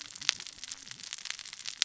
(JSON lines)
{"label": "biophony, cascading saw", "recorder": "SoundTrap 600 or HydroMoth"}